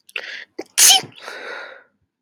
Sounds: Sneeze